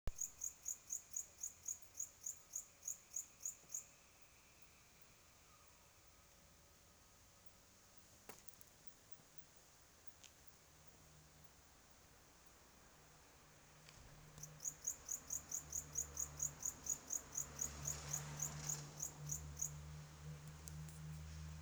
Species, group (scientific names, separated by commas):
Pholidoptera aptera, Orthoptera